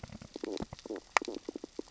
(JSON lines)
{"label": "biophony, stridulation", "recorder": "SoundTrap 600 or HydroMoth"}